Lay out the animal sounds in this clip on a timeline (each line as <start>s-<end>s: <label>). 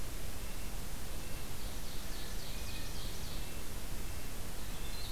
0.0s-5.0s: Red-breasted Nuthatch (Sitta canadensis)
1.5s-3.5s: Ovenbird (Seiurus aurocapilla)
4.5s-5.1s: Winter Wren (Troglodytes hiemalis)